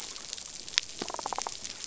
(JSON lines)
{"label": "biophony", "recorder": "SoundTrap 500"}